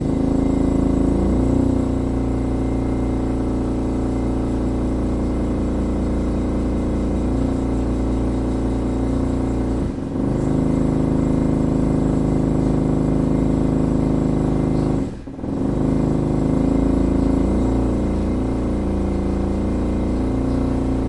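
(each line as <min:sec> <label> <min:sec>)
0:00.0 A drill operates with a mechanical sound. 0:21.1
0:00.0 A drill sounds with varying intensity. 0:21.1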